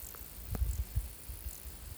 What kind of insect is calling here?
orthopteran